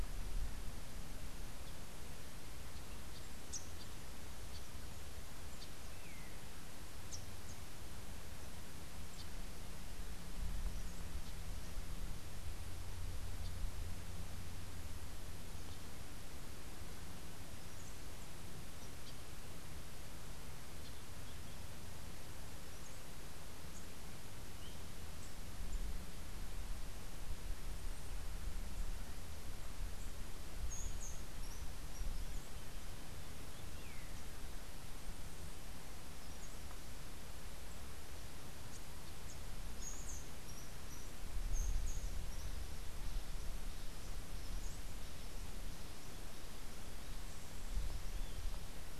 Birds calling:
Rufous-capped Warbler (Basileuterus rufifrons), Long-tailed Manakin (Chiroxiphia linearis), Rufous-tailed Hummingbird (Amazilia tzacatl)

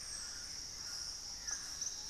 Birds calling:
White-throated Toucan (Ramphastos tucanus), Dusky-throated Antshrike (Thamnomanes ardesiacus)

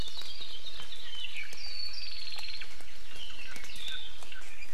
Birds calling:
Hawaii Akepa (Loxops coccineus), Apapane (Himatione sanguinea), Warbling White-eye (Zosterops japonicus), Hawaii Amakihi (Chlorodrepanis virens)

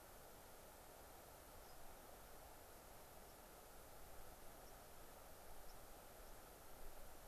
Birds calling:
White-crowned Sparrow (Zonotrichia leucophrys), unidentified bird

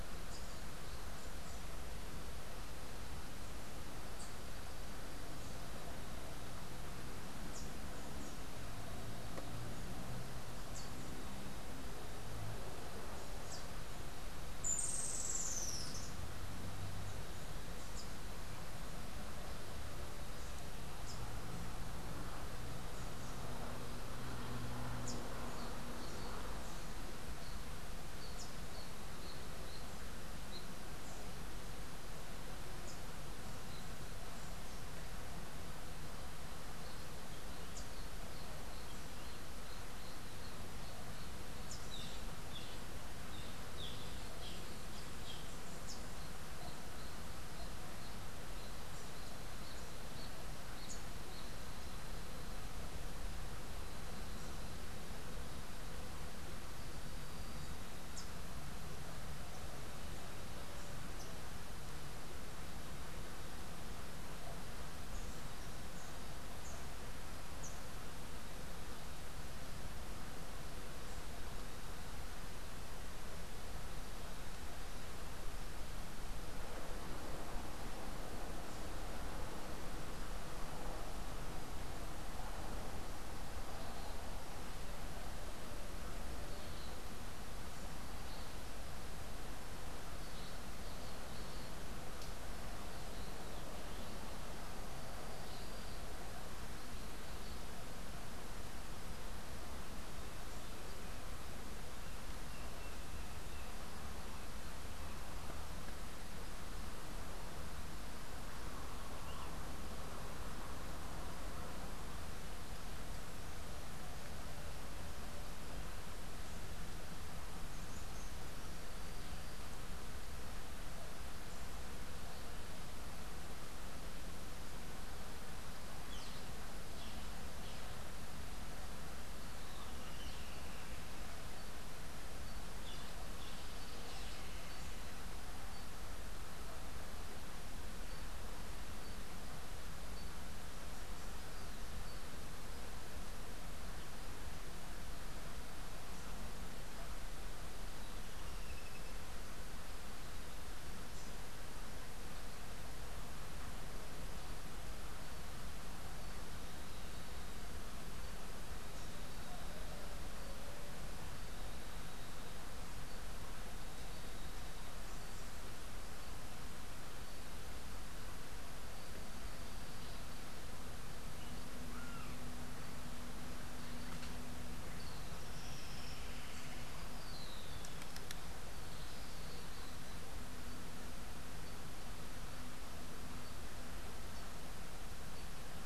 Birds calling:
Streak-headed Woodcreeper (Lepidocolaptes souleyetii), Rufous-tailed Hummingbird (Amazilia tzacatl), Boat-billed Flycatcher (Megarynchus pitangua)

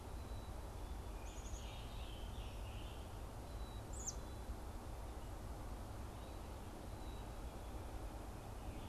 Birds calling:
American Robin (Turdus migratorius), Black-capped Chickadee (Poecile atricapillus), Scarlet Tanager (Piranga olivacea)

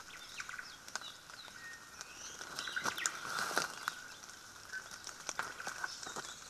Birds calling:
Apapane (Himatione sanguinea), Iiwi (Drepanis coccinea), Omao (Myadestes obscurus)

